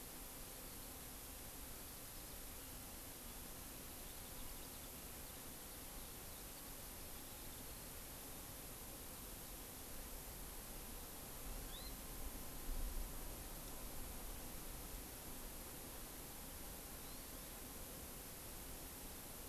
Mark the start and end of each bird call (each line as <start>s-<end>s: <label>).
11.4s-12.0s: Hawaii Amakihi (Chlorodrepanis virens)
16.9s-17.5s: Hawaii Amakihi (Chlorodrepanis virens)